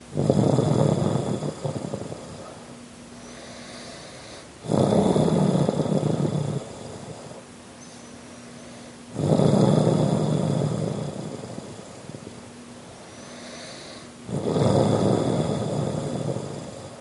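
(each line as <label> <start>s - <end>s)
Man snoring repeatedly indoors. 0.0s - 17.0s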